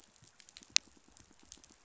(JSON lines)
{"label": "biophony, pulse", "recorder": "SoundTrap 500"}